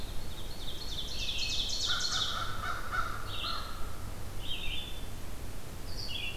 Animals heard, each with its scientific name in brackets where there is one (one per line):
American Crow (Corvus brachyrhynchos)
Red-eyed Vireo (Vireo olivaceus)
Ovenbird (Seiurus aurocapilla)